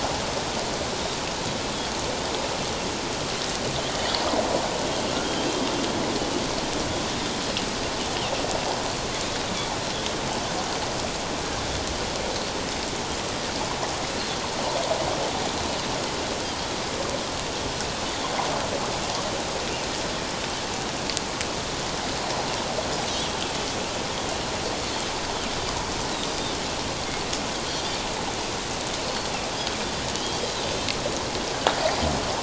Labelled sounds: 23.1	23.4	Pacific white-sided dolphin, 3.1 to 3.5 kHz
27.7	28.0	Pacific white-sided dolphin, 4.6 to 4.8 kHz
30.2	30.6	Pacific white-sided dolphin, 3.1 to 3.3 kHz

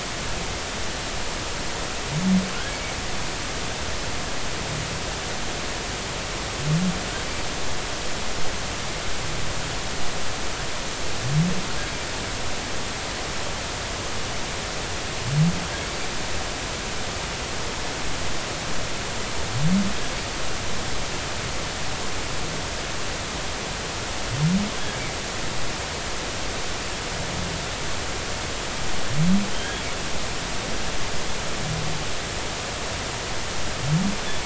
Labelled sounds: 2.7	2.9	humpback whale, 2.2 to 2.3 kHz
24.7	25.0	humpback whale, 1.5 to 1.7 kHz
29.5	29.8	humpback whale, 3.1 to 3.4 kHz

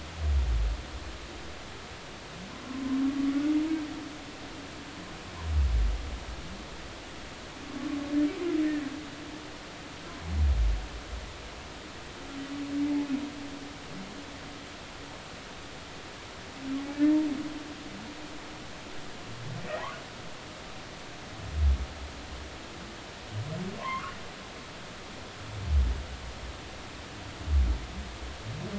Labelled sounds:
19.7	20.0	humpback whale, 0.80 to 2.2 kHz
23.8	24.2	humpback whale, 0.93 to 1.5 kHz

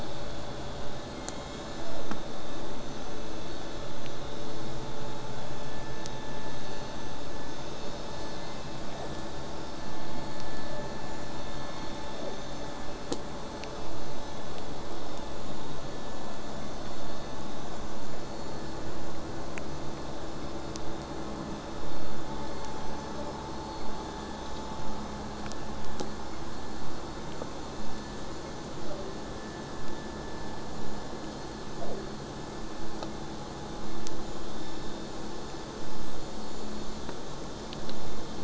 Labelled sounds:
28.8	29.2	killer whale, southern resident, J pod, 0.05 to 1.3 kHz
31.5	32.1	killer whale, southern resident, J pod, 0.20 to 1.4 kHz

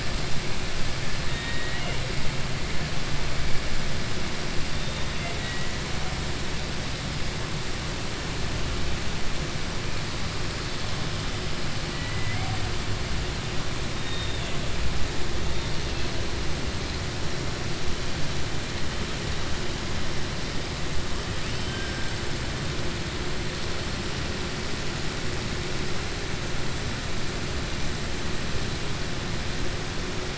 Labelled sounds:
1.2	2.0	killer whale, southern resident, 1.4 to 3.8 kHz
5.1	5.7	killer whale, southern resident, 1.5 to 3.9 kHz
21.4	22.0	killer whale, southern resident, 1.5 to 3.2 kHz

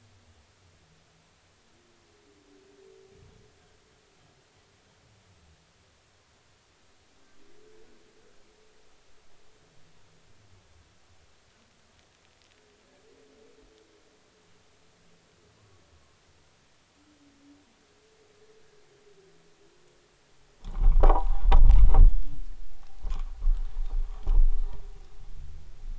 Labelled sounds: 20.6	21.4	rubbing on or near the hydrophone, 0.80 to 1.3 kHz

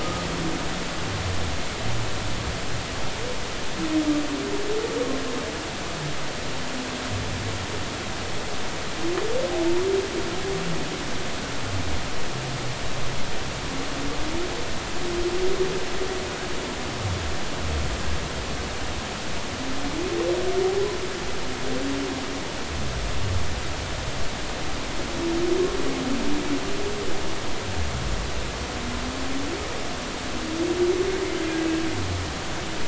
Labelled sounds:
0.0	0.2	humpback whale, 1.2 to 1.3 kHz

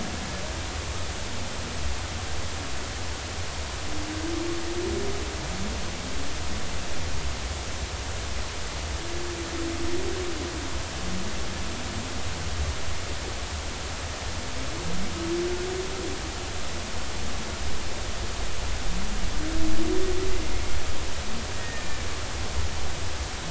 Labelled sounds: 21.6	22.1	killer whale, Bigg's (transient), 1.7 to 2.4 kHz

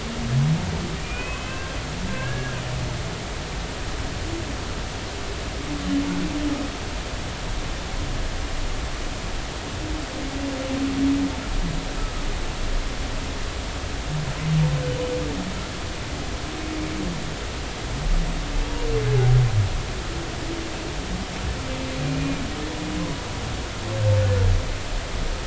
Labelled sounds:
1.0	2.6	humpback whale, 1.5 to 2.7 kHz

